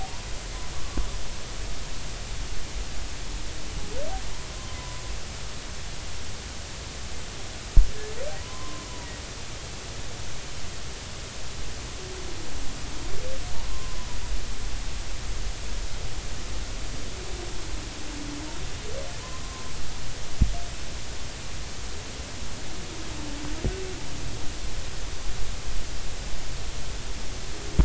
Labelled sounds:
8.4	8.9	humpback whale, 0.96 to 1.2 kHz
13.7	14.1	humpback whale, 0.96 to 1.1 kHz

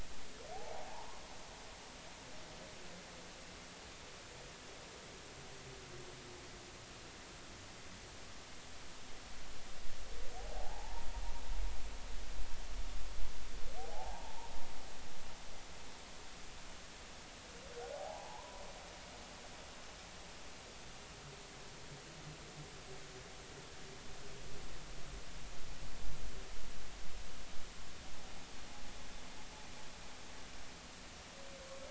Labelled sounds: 0.5	1.2	humpback whale, 0.80 to 1.1 kHz
10.4	11.1	humpback whale, 0.80 to 0.99 kHz
14.9	15.5	humpback whale, 0.80 to 0.99 kHz
18.9	19.6	humpback whale, 0.80 to 1.1 kHz

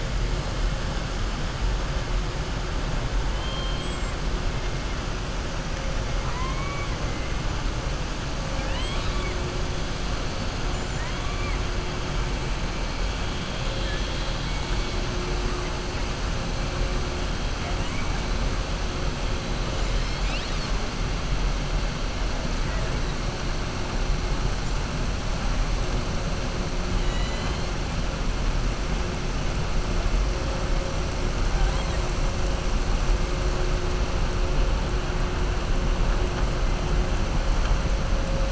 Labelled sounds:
3.3	4.0	killer whale, southern resident, 2.6 to 4.3 kHz
6.2	6.9	killer whale, southern resident, 0.95 to 2.5 kHz
8.5	9.4	killer whale, southern resident, 0.86 to 4.4 kHz
26.9	27.6	killer whale, southern resident, 1.1 to 8.0 kHz

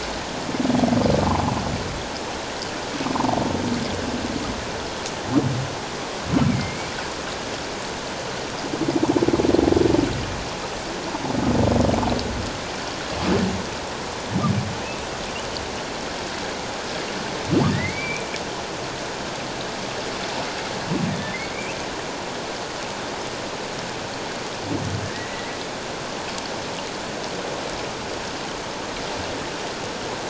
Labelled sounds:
3.1	3.4	humpback whale, 0.78 to 1.3 kHz
6.5	6.9	humpback whale, 2.0 to 2.4 kHz
17.7	18.3	humpback whale, 1.7 to 2.6 kHz
21.3	21.8	humpback whale, 2.0 to 2.8 kHz
25.0	25.6	humpback whale, 1.7 to 2.1 kHz

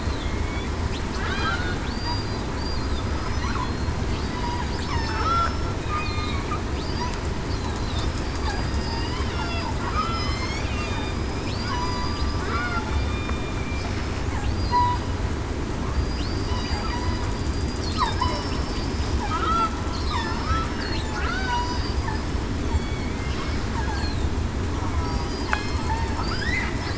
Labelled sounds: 1.3	2.4	killer whale, southern resident, 1.4 to 4.8 kHz
3.0	3.4	killer whale, southern resident, 4.9 to 5.2 kHz
4.8	6.3	killer whale, southern resident, 2.4 to 5.5 kHz
8.2	9.0	killer whale, southern resident, 4.6 to 5.1 kHz
9.3	9.7	killer whale, southern resident, 4.7 to 4.9 kHz
10.0	11.1	killer whale, southern resident, 2.4 to 3.2 kHz
11.6	12.4	killer whale, southern resident, 0.94 to 5.0 kHz
12.9	13.5	killer whale, southern resident, 2.4 to 3.7 kHz
15.9	16.3	killer whale, southern resident, 4.7 to 4.9 kHz
17.9	18.7	killer whale, southern resident, 4.8 to 5.5 kHz
19.3	19.7	killer whale, southern resident, 1.2 to 1.4 kHz
20.0	20.5	killer whale, southern resident, 5.0 to 5.2 kHz
21.4	22.0	killer whale, southern resident, 4.6 to 5.1 kHz
22.6	23.1	killer whale, southern resident, 3.3 to 3.4 kHz
25.0	25.6	killer whale, southern resident, 4.7 to 5.0 kHz

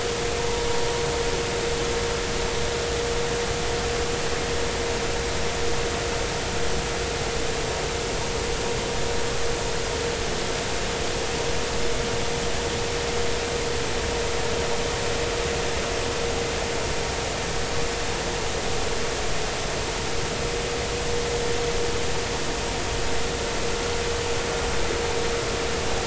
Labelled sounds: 0.4	0.6	vessel noise, 0.83 to 0.99 kHz

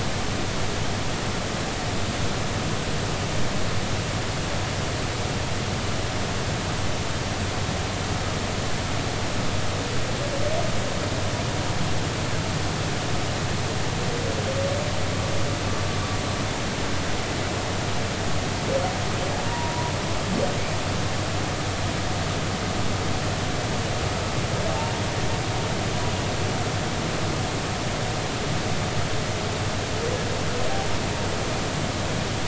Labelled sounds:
19.5	19.9	humpback whale, 0.86 to 1.0 kHz
24.7	24.9	humpback whale, 0.80 to 0.96 kHz

